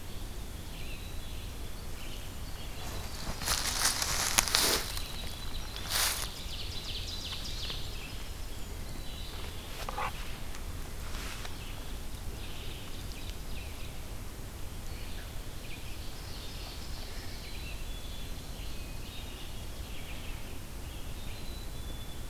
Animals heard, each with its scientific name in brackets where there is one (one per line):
Winter Wren (Troglodytes hiemalis)
Red-eyed Vireo (Vireo olivaceus)
Black-capped Chickadee (Poecile atricapillus)
Ovenbird (Seiurus aurocapilla)